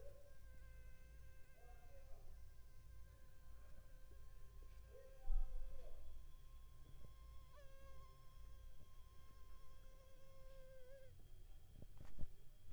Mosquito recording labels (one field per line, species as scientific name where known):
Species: Culex pipiens complex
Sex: female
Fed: unfed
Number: one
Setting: cup